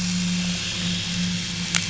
{"label": "anthrophony, boat engine", "recorder": "SoundTrap 500"}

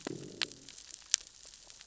{"label": "biophony, growl", "recorder": "SoundTrap 600 or HydroMoth"}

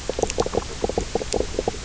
{"label": "biophony, knock croak", "recorder": "SoundTrap 300"}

